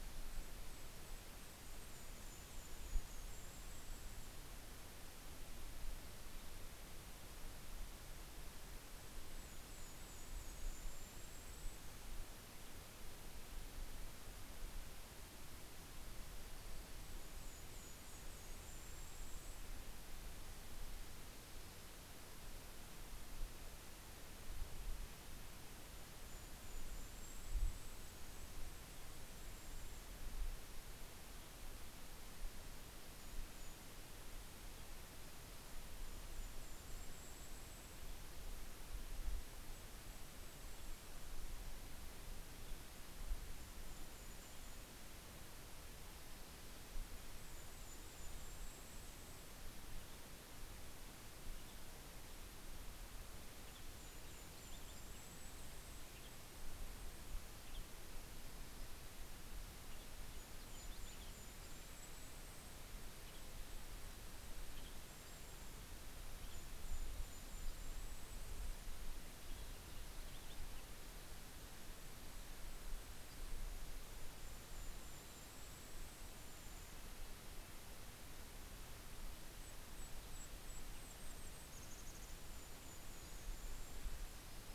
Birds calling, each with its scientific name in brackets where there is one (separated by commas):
Cassin's Finch (Haemorhous cassinii), Hammond's Flycatcher (Empidonax hammondii), Golden-crowned Kinglet (Regulus satrapa), Red-breasted Nuthatch (Sitta canadensis), Western Tanager (Piranga ludoviciana)